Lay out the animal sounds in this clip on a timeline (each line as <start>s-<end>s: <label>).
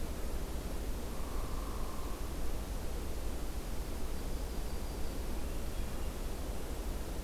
1.1s-2.3s: Hairy Woodpecker (Dryobates villosus)
3.7s-5.5s: Yellow-rumped Warbler (Setophaga coronata)
5.2s-6.2s: Hermit Thrush (Catharus guttatus)